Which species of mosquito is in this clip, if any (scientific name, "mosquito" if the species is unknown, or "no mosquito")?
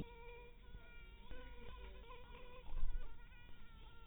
mosquito